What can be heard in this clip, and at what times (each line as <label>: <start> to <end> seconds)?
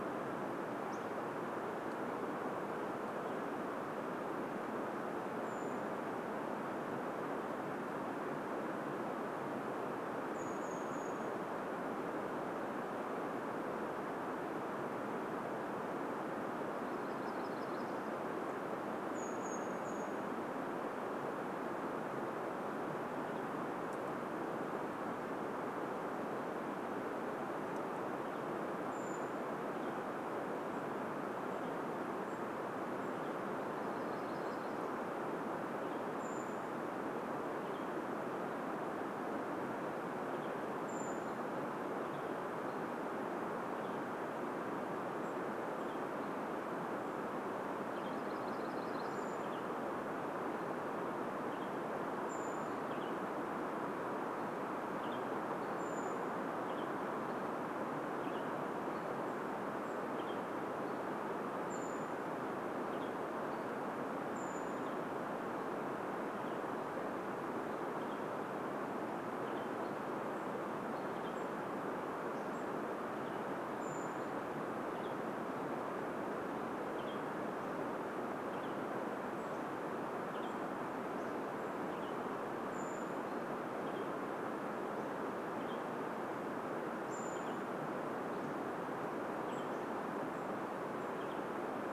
Hammond's Flycatcher song: 0 to 2 seconds
Western Tanager call: 2 to 4 seconds
Brown Creeper call: 4 to 6 seconds
Brown Creeper call: 10 to 12 seconds
warbler song: 16 to 18 seconds
Brown Creeper call: 18 to 22 seconds
Western Tanager call: 22 to 24 seconds
Western Tanager call: 28 to 34 seconds
Brown Creeper call: 28 to 36 seconds
warbler song: 32 to 36 seconds
Western Tanager call: 36 to 38 seconds
Brown Creeper call: 40 to 42 seconds
Western Tanager call: 40 to 92 seconds
Brown Creeper call: 44 to 50 seconds
warbler song: 48 to 50 seconds
Brown Creeper call: 52 to 58 seconds
Brown Creeper call: 60 to 66 seconds
Brown Creeper call: 70 to 76 seconds
Hammond's Flycatcher song: 72 to 74 seconds
Hammond's Flycatcher song: 76 to 82 seconds
Brown Creeper call: 78 to 84 seconds
Hammond's Flycatcher song: 84 to 90 seconds
Brown Creeper call: 86 to 92 seconds